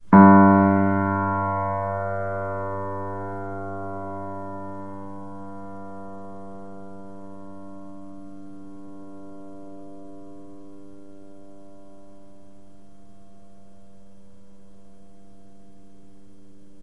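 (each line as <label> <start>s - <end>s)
A single piano note is played and slowly fades away. 0.0s - 16.8s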